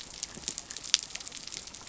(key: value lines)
label: biophony
recorder: SoundTrap 300